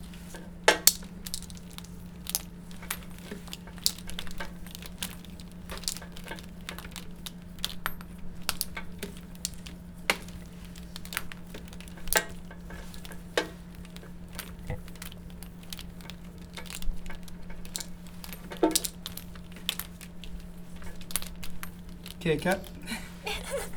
Do the people talk at the beginning?
no